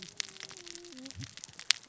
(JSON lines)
{"label": "biophony, cascading saw", "recorder": "SoundTrap 600 or HydroMoth"}